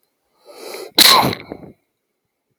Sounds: Cough